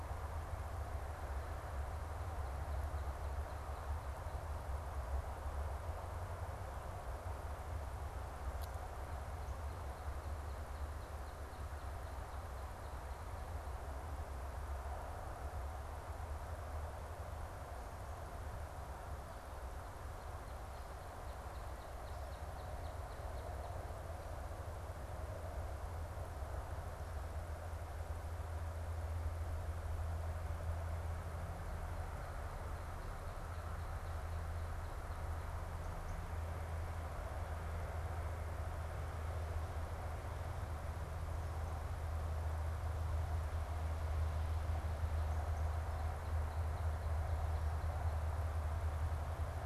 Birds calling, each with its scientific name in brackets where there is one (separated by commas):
Black-capped Chickadee (Poecile atricapillus), Northern Cardinal (Cardinalis cardinalis)